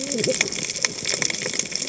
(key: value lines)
label: biophony, cascading saw
recorder: HydroMoth